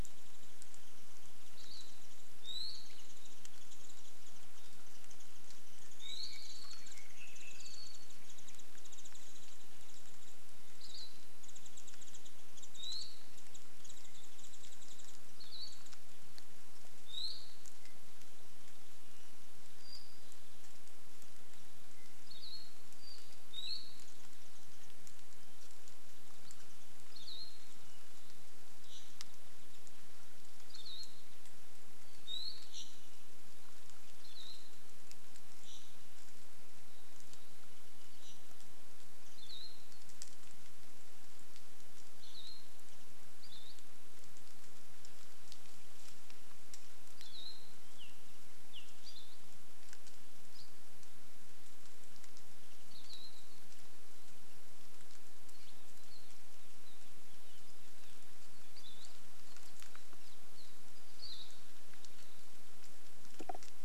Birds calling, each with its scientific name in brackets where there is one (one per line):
Warbling White-eye (Zosterops japonicus)
Apapane (Himatione sanguinea)
Iiwi (Drepanis coccinea)
Hawaii Akepa (Loxops coccineus)